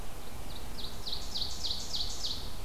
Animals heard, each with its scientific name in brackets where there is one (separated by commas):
Ovenbird (Seiurus aurocapilla)